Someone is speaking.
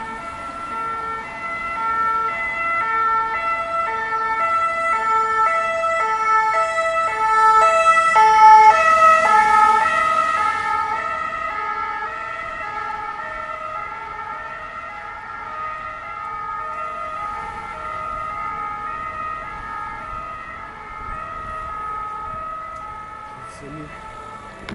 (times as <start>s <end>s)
23.4s 23.9s